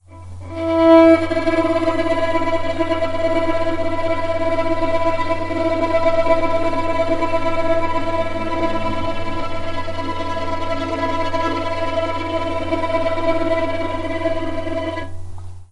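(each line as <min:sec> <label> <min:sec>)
0:00.4 A violin plays a constant note. 0:01.2
0:01.2 The pitch of a violin note fluctuates. 0:15.6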